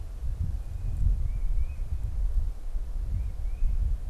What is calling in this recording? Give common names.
Tufted Titmouse